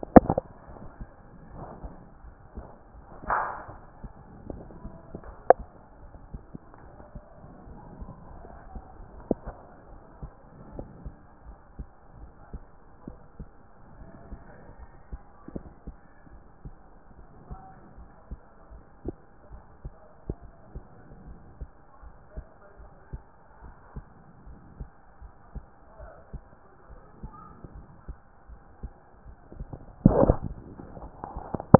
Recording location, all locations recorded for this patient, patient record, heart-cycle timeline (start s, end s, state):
aortic valve (AV)
aortic valve (AV)+pulmonary valve (PV)+tricuspid valve (TV)+mitral valve (MV)
#Age: nan
#Sex: Female
#Height: nan
#Weight: nan
#Pregnancy status: True
#Murmur: Absent
#Murmur locations: nan
#Most audible location: nan
#Systolic murmur timing: nan
#Systolic murmur shape: nan
#Systolic murmur grading: nan
#Systolic murmur pitch: nan
#Systolic murmur quality: nan
#Diastolic murmur timing: nan
#Diastolic murmur shape: nan
#Diastolic murmur grading: nan
#Diastolic murmur pitch: nan
#Diastolic murmur quality: nan
#Outcome: Normal
#Campaign: 2014 screening campaign
0.00	1.20	unannotated
1.20	1.52	diastole
1.52	1.68	S1
1.68	1.82	systole
1.82	1.96	S2
1.96	2.26	diastole
2.26	2.34	S1
2.34	2.56	systole
2.56	2.68	S2
2.68	2.96	diastole
2.96	3.04	S1
3.04	3.24	systole
3.24	3.42	S2
3.42	3.70	diastole
3.70	3.80	S1
3.80	4.02	systole
4.02	4.12	S2
4.12	4.46	diastole
4.46	4.66	S1
4.66	4.84	systole
4.84	4.98	S2
4.98	5.26	diastole
5.26	5.36	S1
5.36	5.58	systole
5.58	5.68	S2
5.68	6.02	diastole
6.02	6.10	S1
6.10	6.32	systole
6.32	6.46	S2
6.46	6.84	diastole
6.84	6.90	S1
6.90	7.14	systole
7.14	7.24	S2
7.24	7.64	diastole
7.64	7.78	S1
7.78	7.98	systole
7.98	8.16	S2
8.16	8.34	diastole
8.34	8.48	S1
8.48	8.70	systole
8.70	8.84	S2
8.84	9.14	diastole
9.14	9.26	S1
9.26	9.46	systole
9.46	9.58	S2
9.58	9.92	diastole
9.92	10.00	S1
10.00	10.22	systole
10.22	10.32	S2
10.32	10.70	diastole
10.70	10.88	S1
10.88	11.04	systole
11.04	11.16	S2
11.16	11.46	diastole
11.46	11.56	S1
11.56	11.78	systole
11.78	11.88	S2
11.88	12.18	diastole
12.18	12.30	S1
12.30	12.52	systole
12.52	12.66	S2
12.66	13.08	diastole
13.08	13.18	S1
13.18	13.40	systole
13.40	13.52	S2
13.52	13.96	diastole
13.96	14.06	S1
14.06	14.30	systole
14.30	14.44	S2
14.44	14.80	diastole
14.80	14.88	S1
14.88	15.12	systole
15.12	15.20	S2
15.20	15.54	diastole
15.54	15.64	S1
15.64	15.88	systole
15.88	15.96	S2
15.96	16.34	diastole
16.34	16.40	S1
16.40	16.66	systole
16.66	16.76	S2
16.76	17.20	diastole
17.20	17.26	S1
17.26	17.50	systole
17.50	17.62	S2
17.62	17.98	diastole
17.98	18.08	S1
18.08	18.30	systole
18.30	18.40	S2
18.40	18.72	diastole
18.72	18.80	S1
18.80	19.04	systole
19.04	19.16	S2
19.16	19.52	diastole
19.52	19.62	S1
19.62	19.84	systole
19.84	19.94	S2
19.94	20.28	diastole
20.28	20.38	S1
20.38	20.68	systole
20.68	20.84	S2
20.84	21.26	diastole
21.26	21.38	S1
21.38	21.60	systole
21.60	21.70	S2
21.70	22.04	diastole
22.04	22.12	S1
22.12	22.36	systole
22.36	22.46	S2
22.46	22.80	diastole
22.80	22.88	S1
22.88	23.14	systole
23.14	23.24	S2
23.24	23.64	diastole
23.64	23.74	S1
23.74	23.96	systole
23.96	24.06	S2
24.06	24.48	diastole
24.48	24.56	S1
24.56	24.78	systole
24.78	24.90	S2
24.90	25.24	diastole
25.24	25.30	S1
25.30	25.54	systole
25.54	25.64	S2
25.64	26.00	diastole
26.00	26.10	S1
26.10	26.34	systole
26.34	26.46	S2
26.46	26.92	diastole
26.92	27.00	S1
27.00	27.22	systole
27.22	27.34	S2
27.34	27.74	diastole
27.74	27.86	S1
27.86	28.08	systole
28.08	28.16	S2
28.16	28.50	diastole
28.50	28.58	S1
28.58	28.82	systole
28.82	28.92	S2
28.92	29.25	diastole
29.25	31.79	unannotated